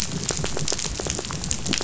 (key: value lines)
label: biophony, rattle
recorder: SoundTrap 500